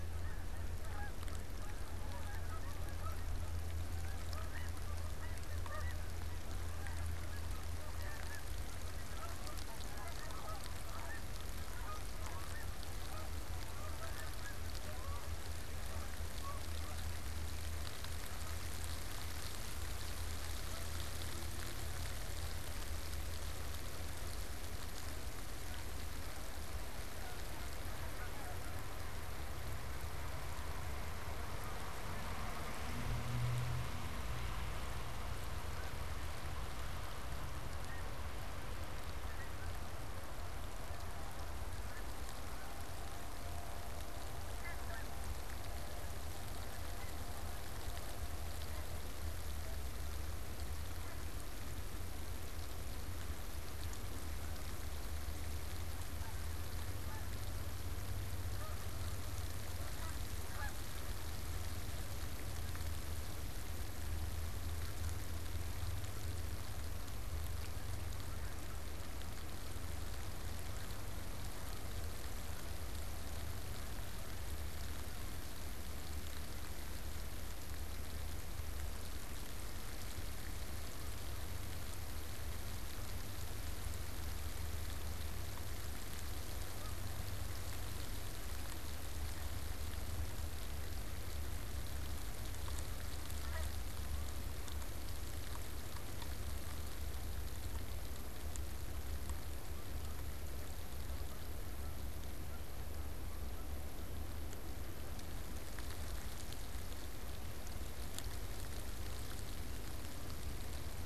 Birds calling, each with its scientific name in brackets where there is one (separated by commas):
Snow Goose (Anser caerulescens), Canada Goose (Branta canadensis), unidentified bird